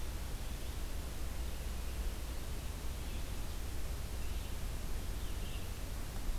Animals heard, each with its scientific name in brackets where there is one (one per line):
Blue-headed Vireo (Vireo solitarius)